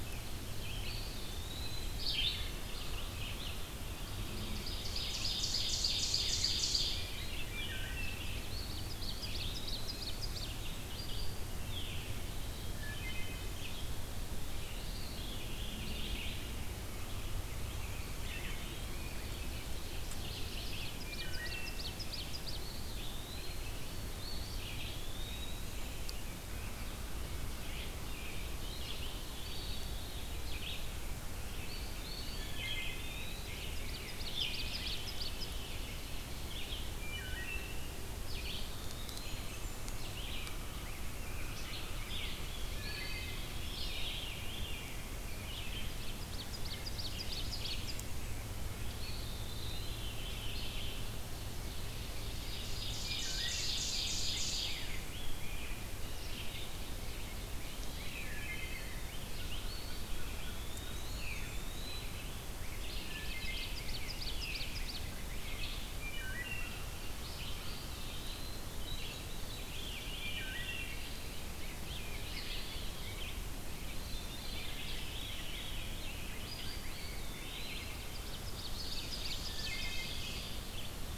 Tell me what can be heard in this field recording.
Red-eyed Vireo, Eastern Wood-Pewee, Blackburnian Warbler, Ovenbird, Rose-breasted Grosbeak, Wood Thrush, Veery, American Crow